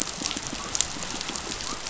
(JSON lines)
{"label": "biophony", "recorder": "SoundTrap 500"}